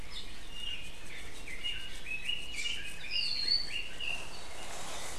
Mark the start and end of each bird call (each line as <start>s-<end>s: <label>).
0.0s-0.3s: Apapane (Himatione sanguinea)
1.3s-4.4s: Red-billed Leiothrix (Leiothrix lutea)